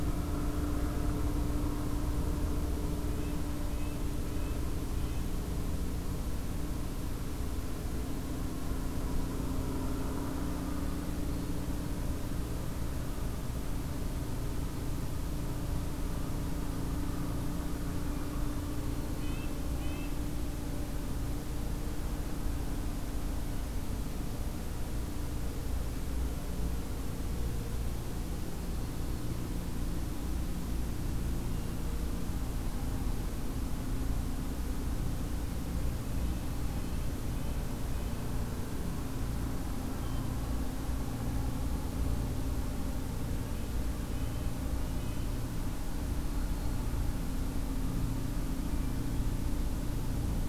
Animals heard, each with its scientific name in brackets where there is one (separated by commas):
Red-breasted Nuthatch (Sitta canadensis), Hermit Thrush (Catharus guttatus)